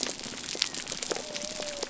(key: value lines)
label: biophony
recorder: SoundTrap 300